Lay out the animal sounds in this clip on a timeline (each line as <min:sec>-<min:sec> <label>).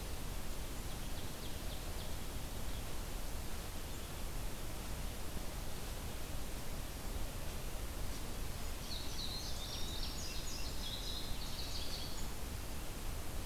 0:00.7-0:02.2 Ovenbird (Seiurus aurocapilla)
0:08.0-0:12.3 Indigo Bunting (Passerina cyanea)